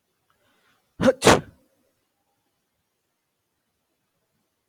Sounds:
Sneeze